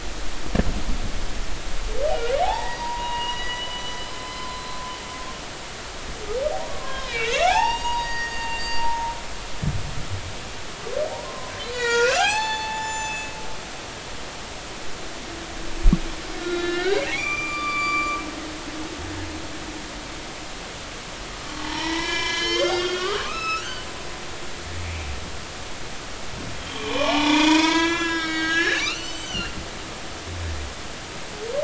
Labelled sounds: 2.1	4.8	humpback whale, 0.80 to 4.9 kHz
5.2	5.4	humpback whale, 2.0 to 2.1 kHz
6.7	9.1	humpback whale, 0.80 to 7.5 kHz
11.1	13.3	humpback whale, 0.80 to 7.9 kHz
16.4	19.0	humpback whale, 1.1 to 7.1 kHz
21.6	23.9	humpback whale, 0.83 to 6.5 kHz
26.6	29.6	humpback whale, 0.80 to 7.8 kHz

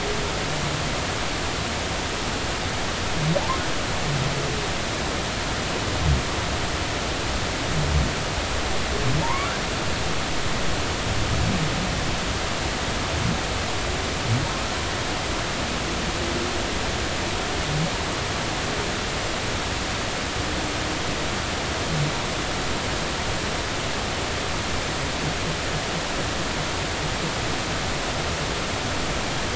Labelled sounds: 9.2	9.5	humpback whale, 0.86 to 1.2 kHz

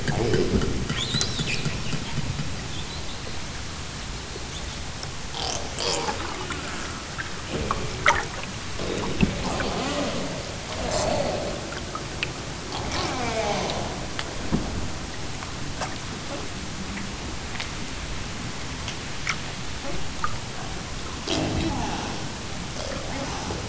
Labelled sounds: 0.0	0.8	killer whale, southern Alaska resident, 0 to 5.6 kHz
5.8	7.0	killer whale, southern Alaska resident, 0.28 to 5.2 kHz
7.4	10.3	killer whale, southern Alaska resident, 0 to 7.5 kHz
10.6	11.8	killer whale, southern Alaska resident, 0 to 7.3 kHz
12.7	14.1	killer whale, southern Alaska resident, 0 to 7.0 kHz
21.1	23.6	killer whale, southern Alaska resident, 0 to 8.0 kHz

